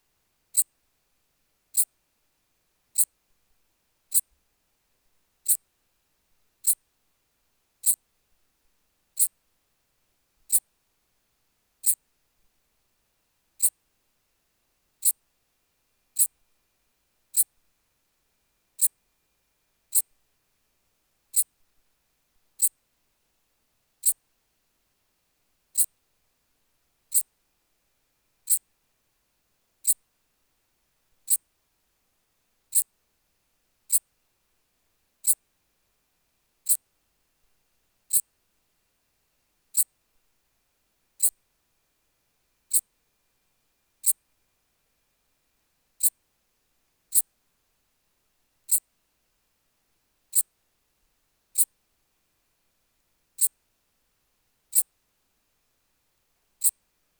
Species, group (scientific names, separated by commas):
Eupholidoptera megastyla, Orthoptera